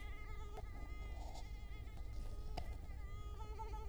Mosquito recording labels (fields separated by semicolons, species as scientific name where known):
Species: Culex quinquefasciatus; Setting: cup